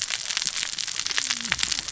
{"label": "biophony, cascading saw", "recorder": "SoundTrap 600 or HydroMoth"}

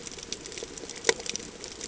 {"label": "ambient", "recorder": "HydroMoth"}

